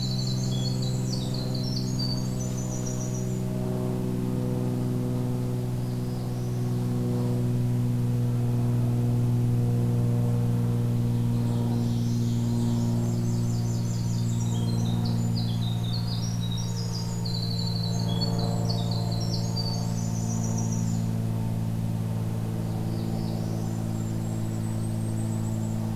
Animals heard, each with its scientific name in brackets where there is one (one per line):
Blackburnian Warbler (Setophaga fusca)
Golden-crowned Kinglet (Regulus satrapa)
Winter Wren (Troglodytes hiemalis)
Ovenbird (Seiurus aurocapilla)
Northern Parula (Setophaga americana)